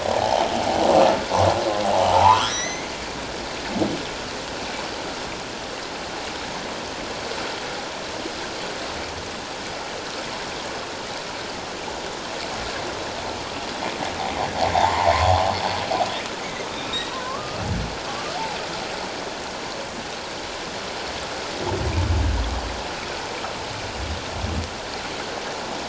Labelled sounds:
0.1	0.5	humpback whale, 0.78 to 1.0 kHz
2.1	2.9	humpback whale, 0.78 to 6.4 kHz
14.7	15.3	humpback whale, 0.78 to 1.2 kHz
16.9	17.6	humpback whale, 0.97 to 4.0 kHz
18.1	18.4	humpback whale, 1.1 to 1.3 kHz

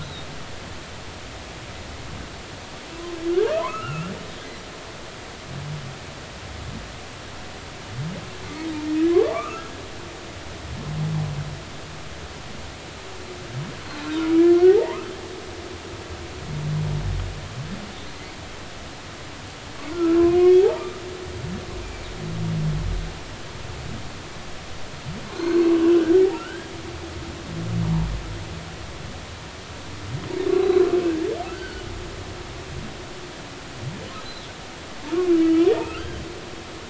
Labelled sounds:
0.0	0.3	humpback whale, 3.6 to 4.1 kHz
3.3	4.1	humpback whale, 0.93 to 2.9 kHz
9.1	9.7	humpback whale, 0.99 to 2.7 kHz
14.7	15.1	humpback whale, 0.80 to 1.4 kHz
19.9	21.0	humpback whale, 1.1 to 2.6 kHz
25.3	26.7	humpback whale, 1.2 to 4.3 kHz
31.5	31.9	humpback whale, 1.4 to 3.2 kHz
35.3	36.2	humpback whale, 1.2 to 3.2 kHz

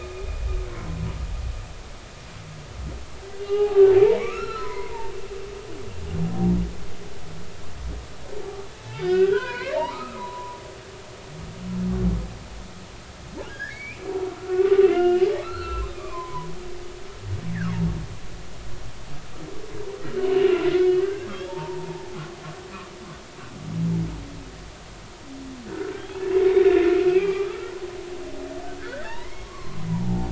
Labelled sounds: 3.4	5.1	humpback whale, 0.80 to 4.2 kHz
8.8	10.6	humpback whale, 0.83 to 4.3 kHz
13.5	16.5	humpback whale, 0.90 to 4.5 kHz
20.2	22.2	humpback whale, 0.80 to 3.0 kHz
25.7	27.7	humpback whale, 1.1 to 3.8 kHz
28.8	30.3	humpback whale, 0.80 to 4.1 kHz

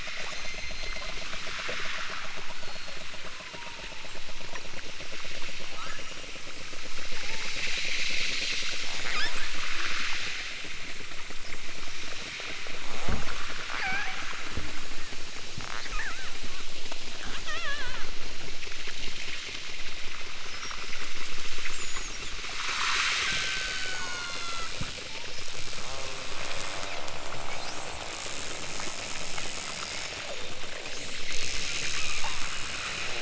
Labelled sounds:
0.1	1.2	killer whale, southern Alaska resident, 3.3 to 8.0 kHz
2.5	4.1	killer whale, southern Alaska resident, 0.64 to 4.9 kHz
5.7	6.4	killer whale, southern Alaska resident, 0.55 to 6.2 kHz
7.1	7.6	killer whale, southern Alaska resident, 0.41 to 4.1 kHz
9.0	9.5	killer whale, southern Alaska resident, 0.96 to 8.0 kHz
13.7	14.3	killer whale, southern Alaska resident, 0.18 to 5.2 kHz
15.6	16.3	killer whale, southern Alaska resident, 0.60 to 5.7 kHz
17.2	18.2	killer whale, southern Alaska resident, 0.28 to 4.8 kHz
23.2	24.7	killer whale, southern Alaska resident, 0.92 to 7.4 kHz
25.1	25.6	killer whale, southern Alaska resident, 0.55 to 5.7 kHz
30.6	31.2	killer whale, southern Alaska resident, 0.96 to 8.0 kHz
31.9	32.4	killer whale, southern Alaska resident, 1.4 to 3.6 kHz

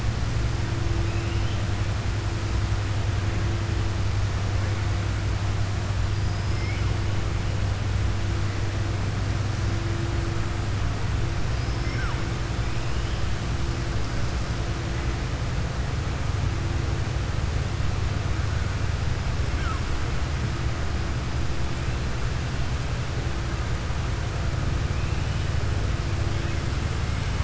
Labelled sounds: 11.5	12.1	killer whale, southern resident, 4.9 to 5.5 kHz

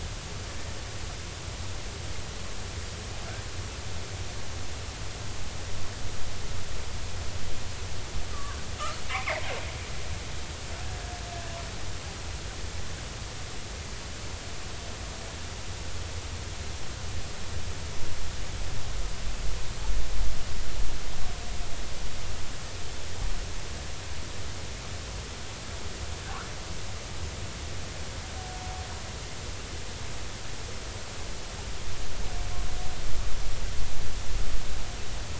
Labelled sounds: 8.3	8.6	killer whale, northern resident, G clan, 1.0 to 1.2 kHz
9.0	9.5	killer whale, northern resident, G clan, 1.9 to 2.7 kHz

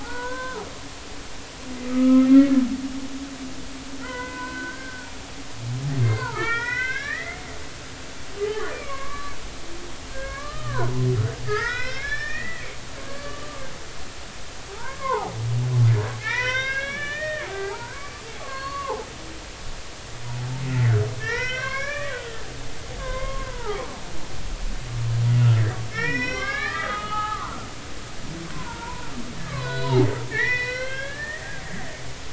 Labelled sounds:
0.0	0.6	humpback whale, 0.80 to 1.6 kHz
1.8	2.5	humpback whale, 1.2 to 2.2 kHz
4.0	5.1	humpback whale, 0.93 to 2.1 kHz
6.0	7.4	humpback whale, 1.1 to 5.8 kHz
8.4	9.3	humpback whale, 0.99 to 2.4 kHz
10.1	11.1	humpback whale, 0.93 to 3.1 kHz
11.4	13.7	humpback whale, 1.0 to 5.8 kHz
14.7	19.1	humpback whale, 0.80 to 6.4 kHz
20.7	22.5	humpback whale, 0.90 to 5.9 kHz
23.0	23.9	humpback whale, 0.80 to 2.2 kHz
25.9	27.7	humpback whale, 0.80 to 5.8 kHz
28.5	31.5	humpback whale, 0.80 to 5.8 kHz

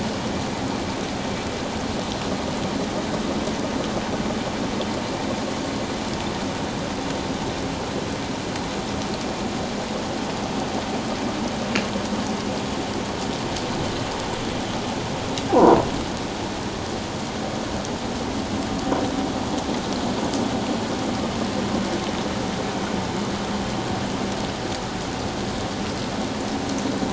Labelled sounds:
15.5	15.8	croaking sound likely from a nearby submerged object, 0.78 to 1.1 kHz

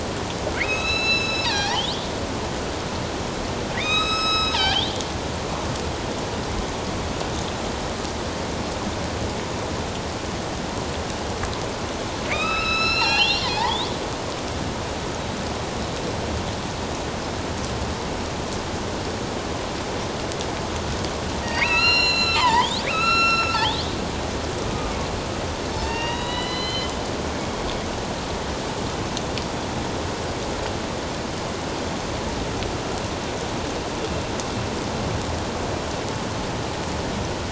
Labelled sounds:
0.5	1.8	killer whale, northern resident, A clan, AB subclan, 0.78 to 8.0 kHz
3.8	4.9	killer whale, northern resident, A clan, AB subclan, 0.78 to 7.9 kHz
12.3	13.9	killer whale, northern resident, A clan, AB subclan, 0.78 to 6.9 kHz
21.4	23.9	killer whale, northern resident, A clan, AB subclan, 0.84 to 8.0 kHz
24.7	24.9	killer whale, northern resident, A clan, AB subclan, 1.2 to 1.3 kHz
25.7	26.9	killer whale, northern resident, A clan, AB subclan, 0.84 to 6.2 kHz
27.4	27.6	killer whale, northern resident, A clan, AB subclan, 3.2 to 3.4 kHz

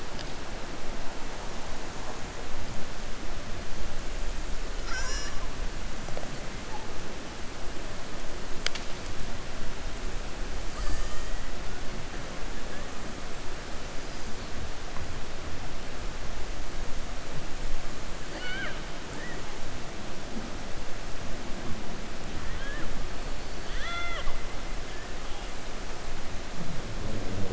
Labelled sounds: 18.2	18.8	killer whale, 0.51 to 4.7 kHz
23.4	24.4	killer whale, 0.66 to 6.2 kHz

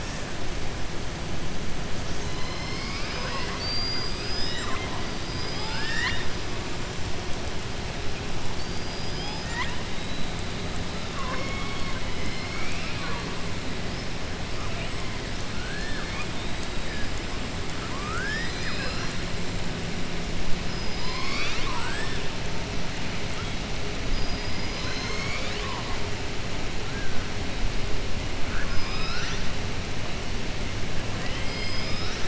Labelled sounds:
5.2	6.3	killer whale, southern resident, 0.90 to 7.5 kHz
8.5	9.8	killer whale, southern resident, 0.86 to 5.6 kHz
11.0	12.0	killer whale, southern resident, 0.49 to 4.4 kHz
15.5	16.3	killer whale, southern resident, 1.1 to 4.4 kHz
17.8	19.2	killer whale, southern resident, 0.98 to 7.9 kHz
20.6	22.2	killer whale, southern resident, 0.94 to 6.7 kHz
28.4	29.4	killer whale, southern resident, 1.1 to 5.9 kHz
31.2	32.2	killer whale, southern resident, 2.0 to 6.0 kHz

